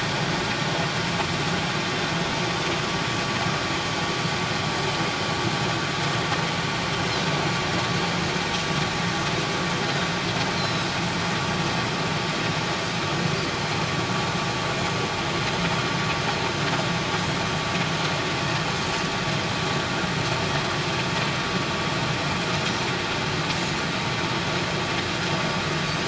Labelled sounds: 10.5	10.9	Pacific white-sided dolphin, 3.8 to 5.6 kHz

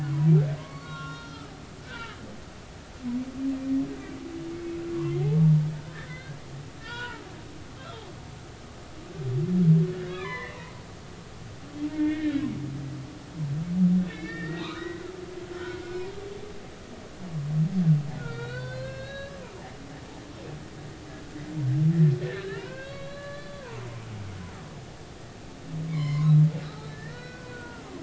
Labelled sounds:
0.1	1.5	humpback whale, 0.93 to 4.3 kHz
1.8	2.2	humpback whale, 1.2 to 3.1 kHz
4.9	6.4	humpback whale, 0.93 to 4.3 kHz
6.8	8.1	humpback whale, 0.86 to 3.6 kHz
10.0	10.6	humpback whale, 0.93 to 4.3 kHz
11.9	12.5	humpback whale, 1.5 to 2.3 kHz
14.0	15.1	humpback whale, 0.93 to 4.1 kHz
15.9	16.1	humpback whale, 2.3 to 2.6 kHz
18.2	19.4	humpback whale, 1.3 to 4.7 kHz
22.2	23.6	humpback whale, 0.90 to 4.0 kHz
25.9	27.8	humpback whale, 0.99 to 7.4 kHz

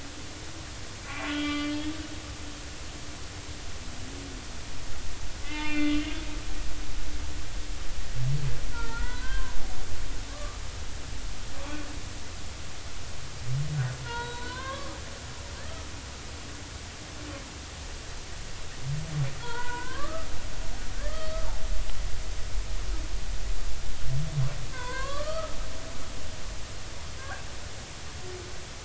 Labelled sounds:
1.0	1.9	humpback whale, 1.0 to 3.6 kHz
5.4	6.0	humpback whale, 0.83 to 4.3 kHz
8.7	9.6	humpback whale, 0.86 to 2.0 kHz
10.3	10.6	humpback whale, 1.1 to 1.3 kHz
14.0	14.9	humpback whale, 0.86 to 4.4 kHz
15.6	15.9	humpback whale, 1.2 to 1.4 kHz
19.4	20.3	humpback whale, 0.86 to 4.5 kHz
21.1	21.4	humpback whale, 4.4 to 4.5 kHz
24.7	25.6	humpback whale, 0.93 to 4.6 kHz
27.2	27.4	humpback whale, 1.4 to 1.7 kHz

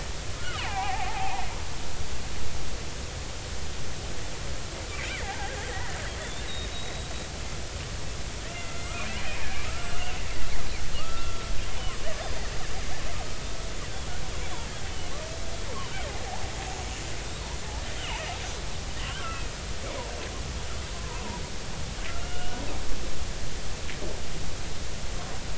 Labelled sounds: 0.6	1.4	killer whale, Bigg's (transient), 0.80 to 2.7 kHz
5.1	7.1	killer whale, Bigg's (transient), 0.80 to 3.9 kHz
8.5	8.9	killer whale, Bigg's (transient), 1.3 to 2.8 kHz
9.7	10.2	killer whale, Bigg's (transient), 1.2 to 3.0 kHz
11.0	11.5	killer whale, Bigg's (transient), 1.1 to 1.4 kHz
17.9	18.2	killer whale, Bigg's (transient), 2.8 to 3.2 kHz
19.0	19.5	killer whale, Bigg's (transient), 1.3 to 3.2 kHz
20.9	21.2	killer whale, Bigg's (transient), 0.90 to 1.1 kHz
22.2	22.6	killer whale, Bigg's (transient), 1.3 to 3.0 kHz

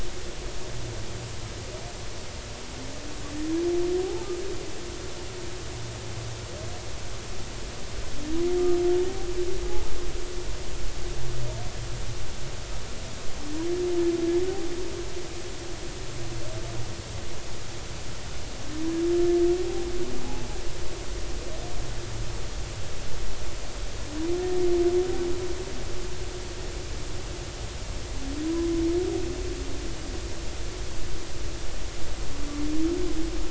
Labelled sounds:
20.2	20.5	humpback whale, 0.80 to 0.96 kHz
28.4	28.7	humpback whale, 0.96 to 1.1 kHz

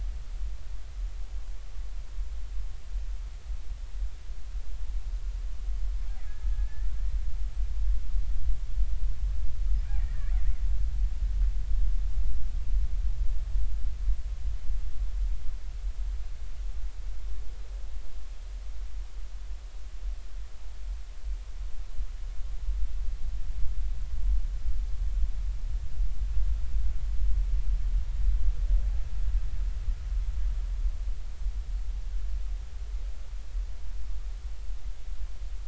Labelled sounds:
6.2	6.9	killer whale, Bigg's (transient), 1.6 to 2.0 kHz
9.8	10.3	killer whale, Bigg's (transient), 1.6 to 2.5 kHz

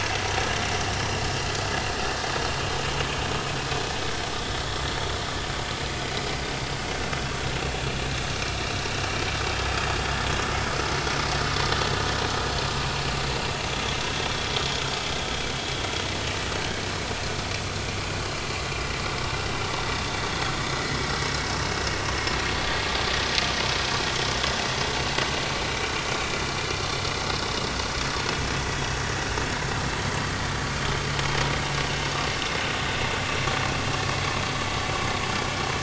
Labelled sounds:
30.0	30.3	vessel noise, 3.0 to 3.2 kHz

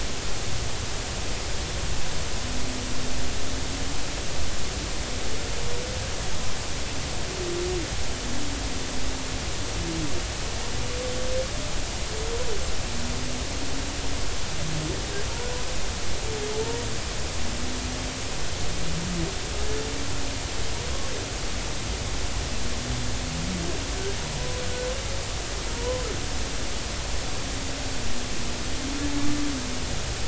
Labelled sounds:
25.7	26.1	humpback whale, 0.90 to 1.1 kHz

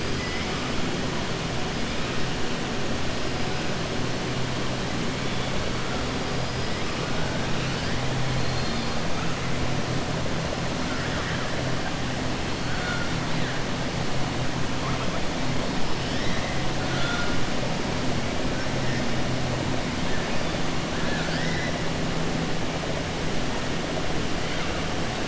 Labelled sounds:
0.1	0.5	killer whale, 1.9 to 3.1 kHz
12.6	13.1	killer whale, 1.4 to 2.2 kHz
20.9	21.7	killer whale, 1.4 to 6.1 kHz

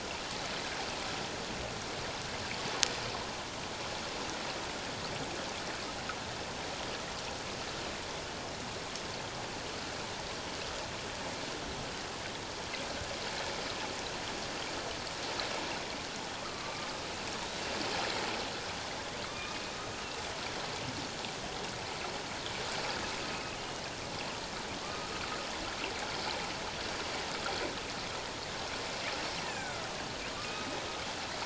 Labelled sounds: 16.4	16.9	killer whale, northern resident, A clan, AB subclan, H01 pod, 1.1 to 1.4 kHz
19.2	19.7	killer whale, northern resident, A clan, AB subclan, H01 pod, 1.1 to 3.8 kHz
23.3	23.9	killer whale, northern resident, A clan, AB subclan, H01 pod, 2.4 to 3.0 kHz
24.8	25.1	killer whale, northern resident, A clan, AB subclan, H01 pod, 1.0 to 1.3 kHz
29.4	29.9	killer whale, northern resident, A clan, AB subclan, H01 pod, 1.2 to 2.1 kHz
30.3	30.7	killer whale, northern resident, A clan, AB subclan, H01 pod, 1.1 to 1.3 kHz

